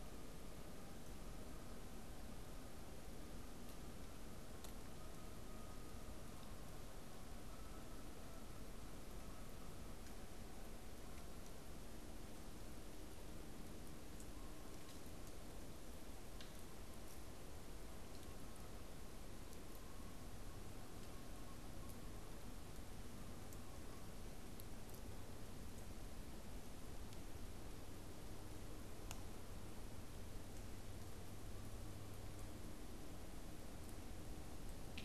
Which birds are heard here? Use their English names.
Canada Goose